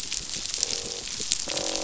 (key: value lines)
label: biophony, croak
recorder: SoundTrap 500